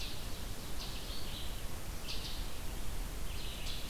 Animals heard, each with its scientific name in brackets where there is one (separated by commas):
Red-eyed Vireo (Vireo olivaceus)